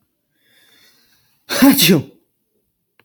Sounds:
Sneeze